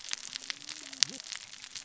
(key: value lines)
label: biophony, cascading saw
recorder: SoundTrap 600 or HydroMoth